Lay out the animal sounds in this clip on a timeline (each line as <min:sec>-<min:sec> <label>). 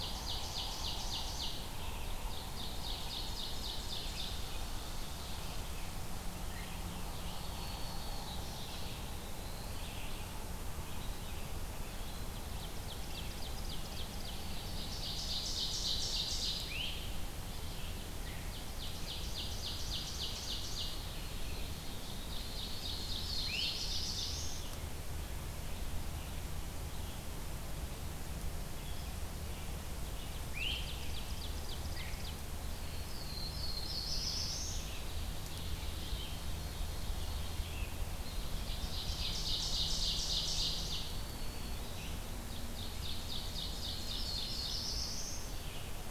0:00.0-0:01.7 Ovenbird (Seiurus aurocapilla)
0:00.0-0:46.1 Red-eyed Vireo (Vireo olivaceus)
0:02.0-0:04.5 Ovenbird (Seiurus aurocapilla)
0:07.2-0:08.8 Black-throated Green Warbler (Setophaga virens)
0:08.7-0:10.0 Black-throated Blue Warbler (Setophaga caerulescens)
0:11.9-0:16.9 Ovenbird (Seiurus aurocapilla)
0:16.5-0:17.0 Great Crested Flycatcher (Myiarchus crinitus)
0:17.9-0:21.1 Ovenbird (Seiurus aurocapilla)
0:21.7-0:24.6 Ovenbird (Seiurus aurocapilla)
0:22.6-0:24.9 Black-throated Blue Warbler (Setophaga caerulescens)
0:23.3-0:23.9 Great Crested Flycatcher (Myiarchus crinitus)
0:30.0-0:32.4 Ovenbird (Seiurus aurocapilla)
0:30.5-0:30.9 Great Crested Flycatcher (Myiarchus crinitus)
0:32.7-0:35.2 Black-throated Blue Warbler (Setophaga caerulescens)
0:34.1-0:37.8 Ovenbird (Seiurus aurocapilla)
0:38.1-0:41.3 Ovenbird (Seiurus aurocapilla)
0:38.2-0:39.5 Eastern Wood-Pewee (Contopus virens)
0:40.6-0:42.4 Black-throated Green Warbler (Setophaga virens)
0:42.3-0:44.9 Ovenbird (Seiurus aurocapilla)
0:43.5-0:45.7 Black-throated Blue Warbler (Setophaga caerulescens)